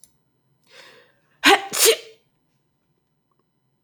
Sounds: Sneeze